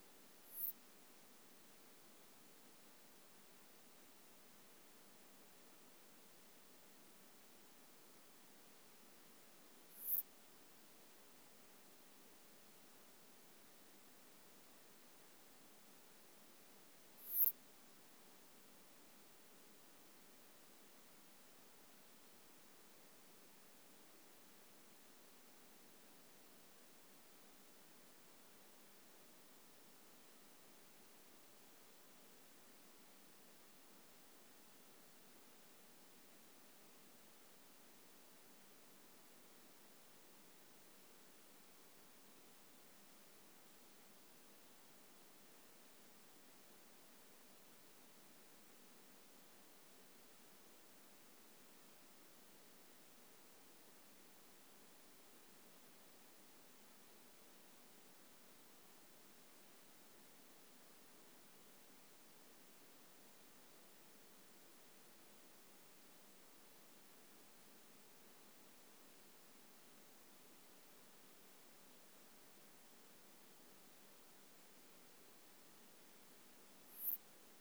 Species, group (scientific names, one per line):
Poecilimon nonveilleri
Orthoptera